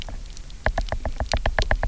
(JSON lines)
{"label": "biophony, knock", "recorder": "SoundTrap 300"}